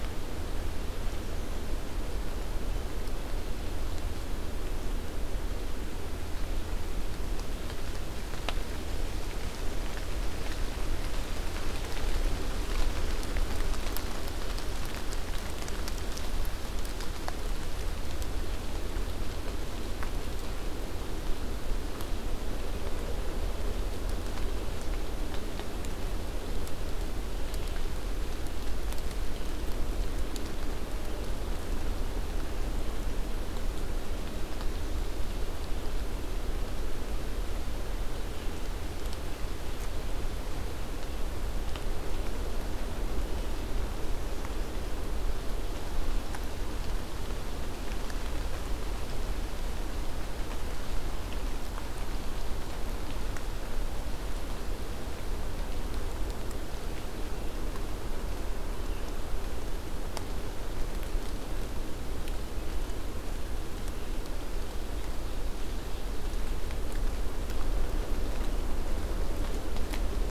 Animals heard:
forest ambience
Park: Acadia National Park